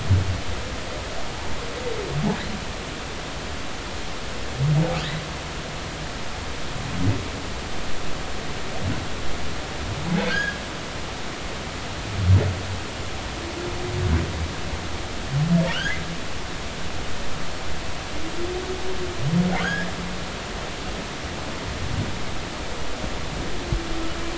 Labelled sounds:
10.2	10.6	humpback whale, 1.5 to 1.7 kHz
19.6	19.9	humpback whale, 1.4 to 3.4 kHz

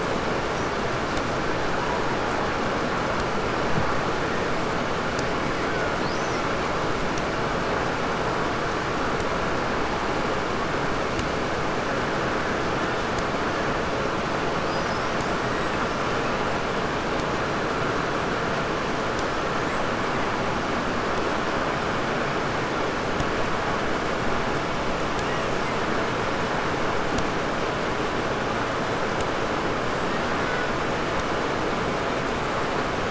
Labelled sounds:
5.5	6.6	killer whale, 1.2 to 8.0 kHz
14.6	15.9	killer whale, 1.4 to 8.0 kHz
19.1	20.5	killer whale, 1.6 to 8.0 kHz
25.0	26.0	killer whale, 1.4 to 8.0 kHz
29.7	30.9	killer whale, 1.1 to 8.0 kHz

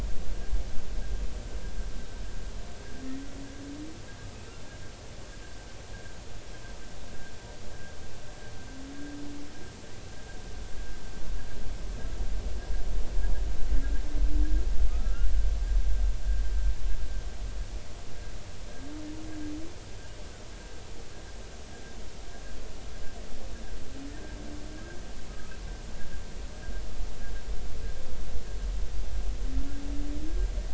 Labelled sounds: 14.9	15.3	humpback whale, 1.2 to 1.5 kHz
25.3	25.6	humpback whale, 1.2 to 1.3 kHz

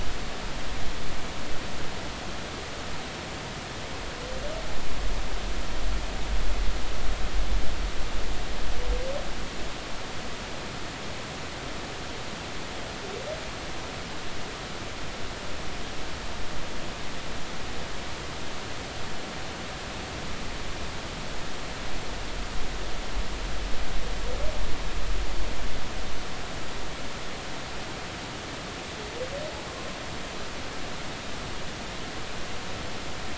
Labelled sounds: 29.7	30.0	humpback whale, 0.99 to 1.1 kHz

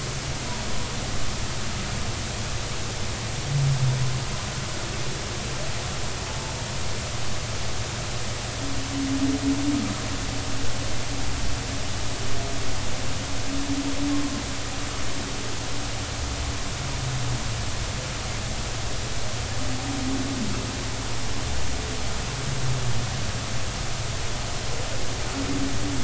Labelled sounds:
6.3	6.5	humpback whale, 0.83 to 0.93 kHz

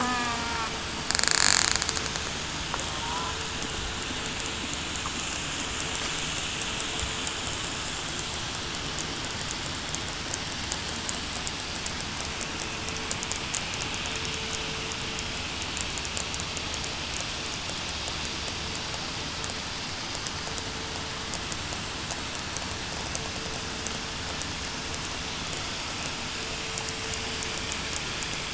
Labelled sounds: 0.0	0.4	killer whale, southern resident, 0.68 to 1.8 kHz

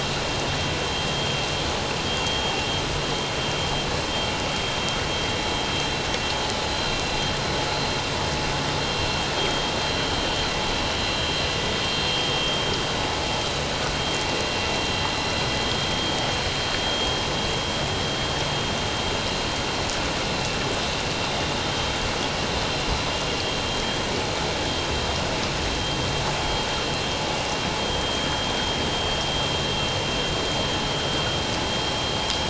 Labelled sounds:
2.2	2.5	vessel noise, 3.2 to 3.3 kHz
6.6	6.9	vessel noise, 4.0 to 4.2 kHz
16.9	17.2	vessel noise, 3.2 to 3.3 kHz

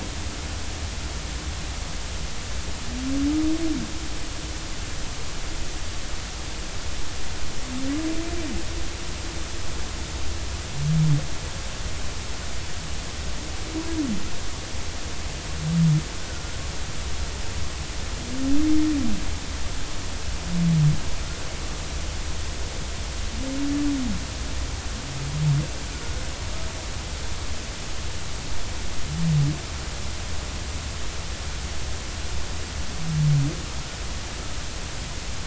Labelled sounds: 16.3	16.6	humpback whale, 1.3 to 1.5 kHz

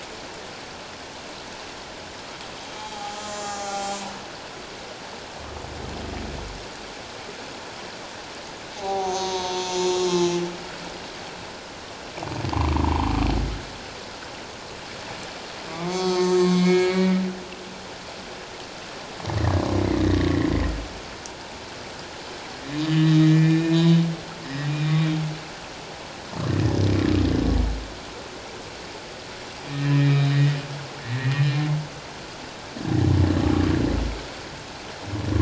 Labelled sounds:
2.6	4.0	humpback whale, 0.78 to 7.8 kHz
8.8	10.4	humpback whale, 0.78 to 7.0 kHz
12.5	13.1	humpback whale, 0.78 to 1.3 kHz
15.7	17.2	humpback whale, 0.84 to 6.8 kHz
19.4	19.6	humpback whale, 1.6 to 2.1 kHz
20.0	20.5	humpback whale, 1.7 to 2.1 kHz
22.8	24.0	humpback whale, 1.7 to 4.0 kHz
24.4	25.1	humpback whale, 1.8 to 3.9 kHz
29.7	30.6	humpback whale, 1.7 to 3.9 kHz
31.0	31.5	humpback whale, 1.7 to 2.5 kHz

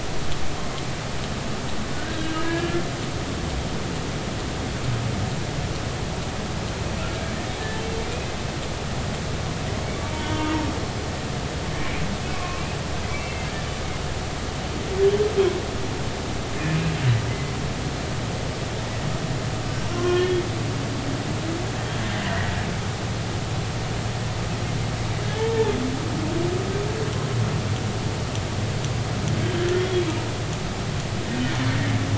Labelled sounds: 1.9	2.8	humpback whale, 1.4 to 1.8 kHz
10.0	10.6	humpback whale, 0.86 to 3.1 kHz
12.3	12.6	humpback whale, 1.0 to 1.2 kHz
13.1	13.5	humpback whale, 2.0 to 2.8 kHz
17.3	17.5	humpback whale, 2.0 to 2.1 kHz
19.9	20.4	humpback whale, 0.99 to 3.4 kHz
22.3	22.5	humpback whale, 1.7 to 2.0 kHz
25.4	25.7	humpback whale, 0.83 to 0.96 kHz
29.8	30.0	humpback whale, 3.2 to 3.4 kHz

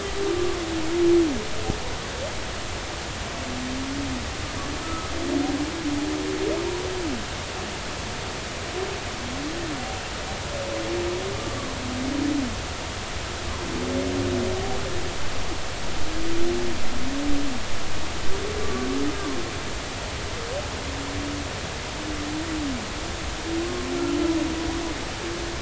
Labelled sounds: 4.8	5.1	humpback whale, 1.2 to 1.4 kHz
19.6	19.9	humpback whale, 1.1 to 1.2 kHz

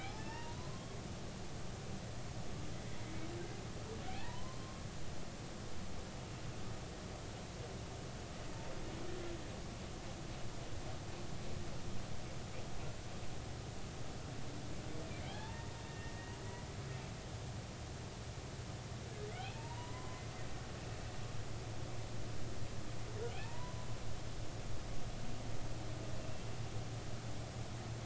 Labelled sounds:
0.0	1.4	humpback whale, 0.80 to 5.6 kHz
5.1	5.9	humpback whale, 0.80 to 1.2 kHz
15.2	16.1	humpback whale, 0.80 to 3.7 kHz
19.5	20.3	humpback whale, 0.86 to 3.0 kHz
23.3	23.9	humpback whale, 0.80 to 2.0 kHz

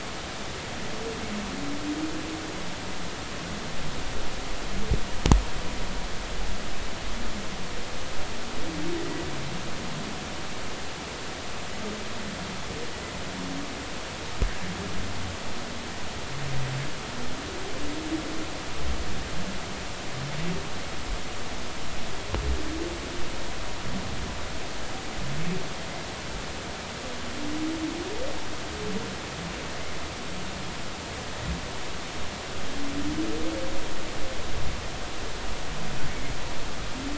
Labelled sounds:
9.0	9.2	humpback whale, 1.9 to 2.0 kHz
36.1	36.3	humpback whale, 2.1 to 2.3 kHz

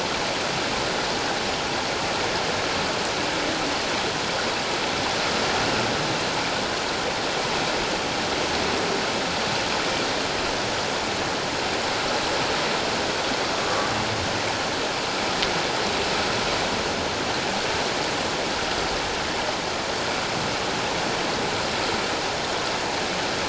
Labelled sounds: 13.6	13.9	humpback whale, 1.1 to 1.2 kHz

